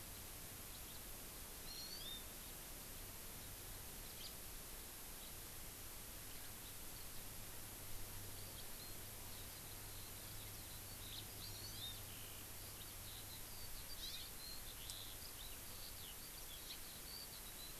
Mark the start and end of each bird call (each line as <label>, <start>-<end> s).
House Finch (Haemorhous mexicanus), 0.7-1.0 s
Hawaii Amakihi (Chlorodrepanis virens), 1.6-2.3 s
House Finch (Haemorhous mexicanus), 4.2-4.3 s
Eurasian Skylark (Alauda arvensis), 8.3-17.8 s
Hawaii Amakihi (Chlorodrepanis virens), 11.4-12.0 s
Hawaii Amakihi (Chlorodrepanis virens), 13.9-14.2 s